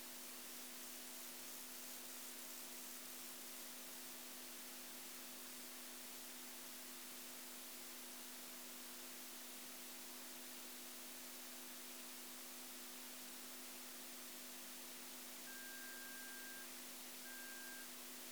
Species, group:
Chorthippus mollis, Orthoptera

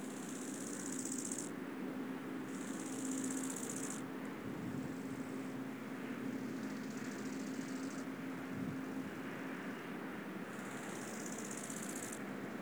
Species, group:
Chorthippus biguttulus, Orthoptera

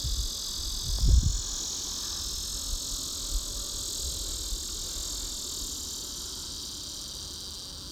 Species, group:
Neotibicen lyricen, Cicadidae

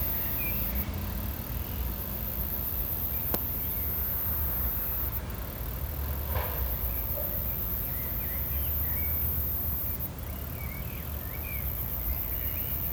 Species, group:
Dimissalna dimissa, Cicadidae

